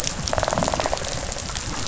{"label": "biophony, rattle response", "recorder": "SoundTrap 500"}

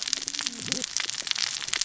{"label": "biophony, cascading saw", "recorder": "SoundTrap 600 or HydroMoth"}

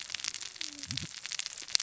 {"label": "biophony, cascading saw", "recorder": "SoundTrap 600 or HydroMoth"}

